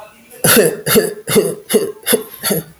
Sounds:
Sigh